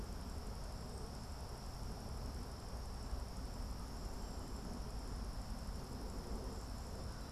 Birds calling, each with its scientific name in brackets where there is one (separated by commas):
Cedar Waxwing (Bombycilla cedrorum)